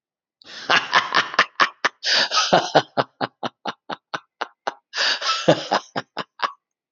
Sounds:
Laughter